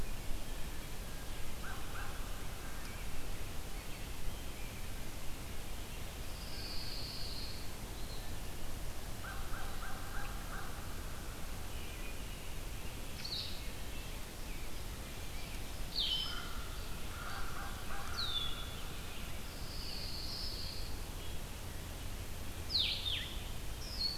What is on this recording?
American Crow, American Robin, Pine Warbler, Eastern Wood-Pewee, Blue-headed Vireo